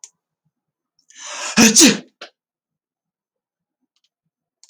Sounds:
Sneeze